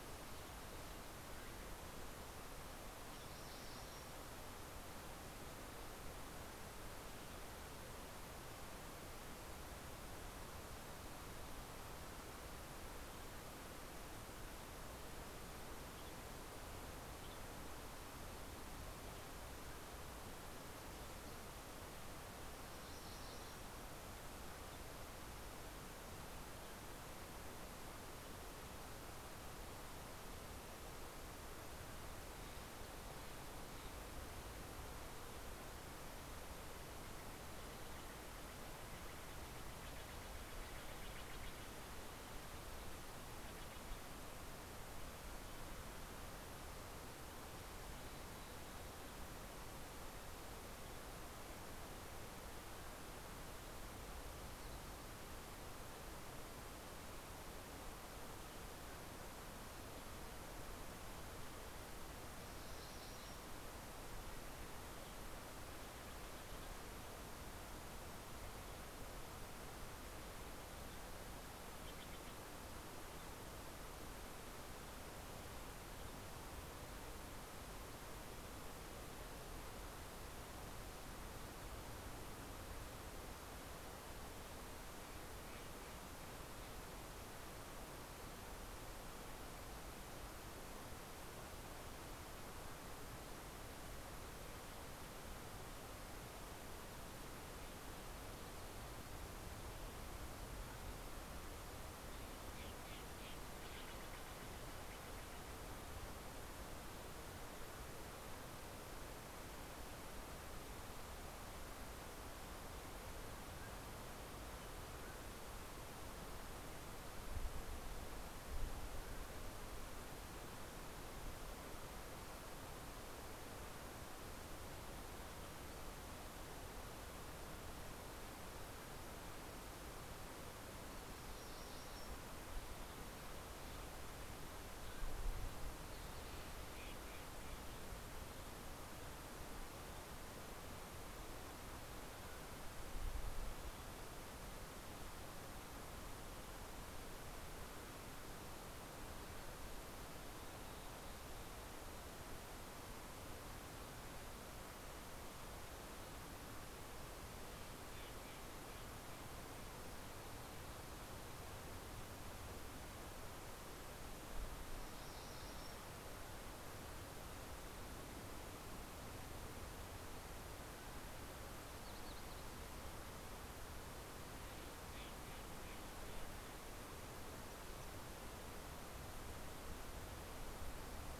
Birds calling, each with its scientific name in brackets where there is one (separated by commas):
Mountain Chickadee (Poecile gambeli), Steller's Jay (Cyanocitta stelleri), MacGillivray's Warbler (Geothlypis tolmiei)